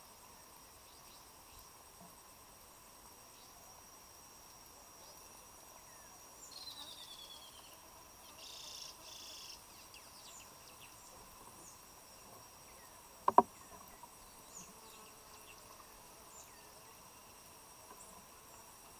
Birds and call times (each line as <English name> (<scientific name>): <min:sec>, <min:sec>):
Spectacled Weaver (Ploceus ocularis): 0:06.9